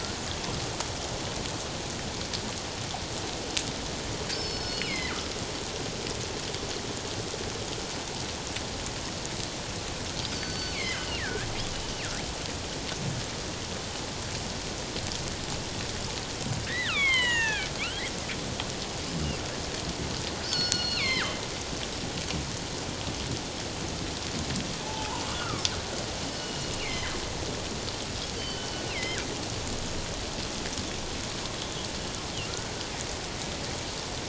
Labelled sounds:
4.3	5.2	killer whale, northern resident, G clan, 1.7 to 5.4 kHz
10.4	11.5	killer whale, northern resident, G clan, 1.4 to 4.7 kHz
16.6	18.0	killer whale, northern resident, G clan, 0.78 to 4.3 kHz
20.4	21.4	killer whale, northern resident, G clan, 1.0 to 5.4 kHz
24.8	25.6	killer whale, northern resident, G clan, 0.81 to 2.9 kHz
26.3	27.2	killer whale, northern resident, G clan, 1.5 to 5.3 kHz
28.3	29.2	killer whale, northern resident, G clan, 1.9 to 4.7 kHz
32.5	32.7	killer whale, northern resident, G clan, 1.3 to 1.6 kHz

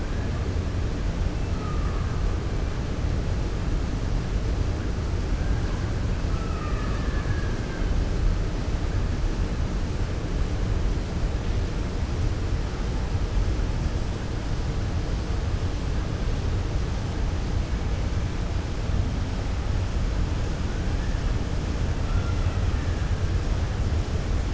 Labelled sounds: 1.5	2.1	killer whale, 1.1 to 2.0 kHz
6.3	7.5	killer whale, 1.0 to 2.8 kHz
22.0	22.6	killer whale, 1.3 to 2.8 kHz

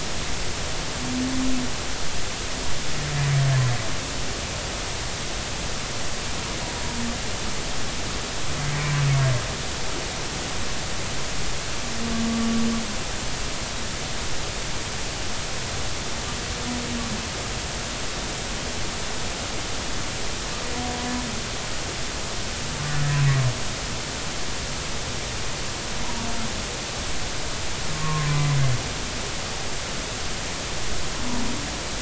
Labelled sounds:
27.9	28.5	humpback whale, 0.96 to 1.2 kHz

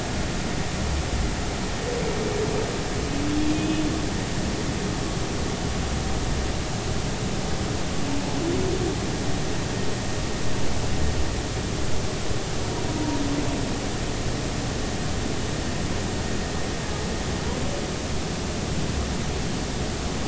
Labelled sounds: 3.5	3.8	humpback whale, 2.4 to 2.6 kHz

